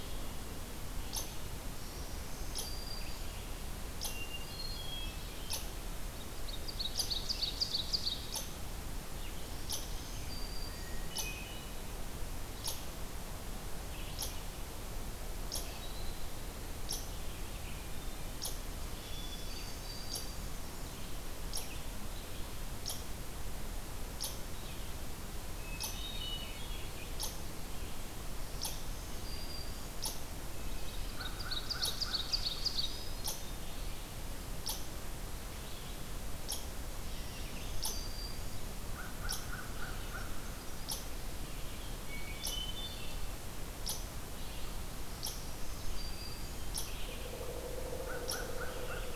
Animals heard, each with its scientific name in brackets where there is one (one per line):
Red-eyed Vireo (Vireo olivaceus)
Hermit Thrush (Catharus guttatus)
unknown mammal
American Crow (Corvus brachyrhynchos)
Black-throated Green Warbler (Setophaga virens)
Ovenbird (Seiurus aurocapilla)